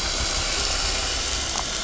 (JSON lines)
{"label": "anthrophony, boat engine", "recorder": "SoundTrap 500"}